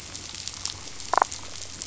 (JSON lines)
{"label": "biophony, damselfish", "recorder": "SoundTrap 500"}